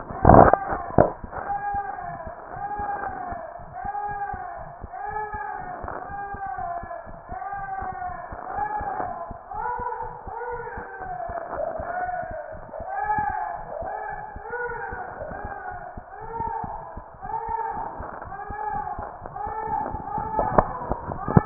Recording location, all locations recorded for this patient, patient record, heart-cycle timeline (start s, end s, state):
mitral valve (MV)
mitral valve (MV)
#Age: Infant
#Sex: Male
#Height: 81.0 cm
#Weight: 11.745 kg
#Pregnancy status: False
#Murmur: Present
#Murmur locations: mitral valve (MV)
#Most audible location: mitral valve (MV)
#Systolic murmur timing: Holosystolic
#Systolic murmur shape: Plateau
#Systolic murmur grading: I/VI
#Systolic murmur pitch: Low
#Systolic murmur quality: Blowing
#Diastolic murmur timing: nan
#Diastolic murmur shape: nan
#Diastolic murmur grading: nan
#Diastolic murmur pitch: nan
#Diastolic murmur quality: nan
#Outcome: Normal
#Campaign: 2015 screening campaign
0.00	2.00	unannotated
2.00	2.04	diastole
2.04	2.16	S1
2.16	2.25	systole
2.25	2.32	S2
2.32	2.52	diastole
2.52	2.64	S1
2.64	2.78	systole
2.78	2.88	S2
2.88	3.02	diastole
3.02	3.14	S1
3.14	3.30	systole
3.30	3.42	S2
3.42	3.62	diastole
3.62	3.72	S1
3.72	3.83	systole
3.83	3.90	S2
3.90	4.08	diastole
4.08	4.18	S1
4.18	4.32	systole
4.32	4.42	S2
4.42	4.58	diastole
4.58	4.72	S1
4.72	4.82	systole
4.82	4.90	S2
4.90	5.10	diastole
5.10	5.22	S1
5.22	5.30	systole
5.30	5.40	S2
5.40	5.60	diastole
5.60	5.70	S1
5.70	5.82	systole
5.82	5.92	S2
5.92	6.10	diastole
6.10	6.20	S1
6.20	6.30	systole
6.30	6.40	S2
6.40	6.58	diastole
6.58	6.70	S1
6.70	6.82	systole
6.82	6.92	S2
6.92	7.07	diastole
7.07	7.20	S1
7.20	7.29	systole
7.29	7.38	S2
7.38	7.55	diastole
7.55	7.66	S1
7.66	7.79	systole
7.79	7.92	S2
7.92	8.08	diastole
8.08	21.46	unannotated